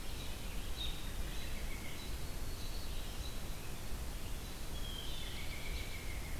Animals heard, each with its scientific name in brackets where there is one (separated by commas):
American Robin (Turdus migratorius), Red-eyed Vireo (Vireo olivaceus), Blue Jay (Cyanocitta cristata)